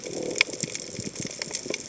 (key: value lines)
label: biophony
recorder: HydroMoth